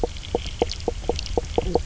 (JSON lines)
{"label": "biophony, knock croak", "recorder": "SoundTrap 300"}